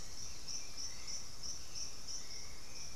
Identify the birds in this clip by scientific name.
Turdus hauxwelli, Psarocolius angustifrons